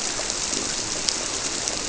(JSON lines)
{"label": "biophony", "recorder": "SoundTrap 300"}